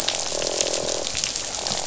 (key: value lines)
label: biophony, croak
recorder: SoundTrap 500